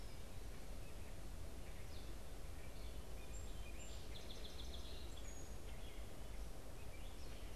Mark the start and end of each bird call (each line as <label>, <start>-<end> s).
Song Sparrow (Melospiza melodia), 3.1-5.6 s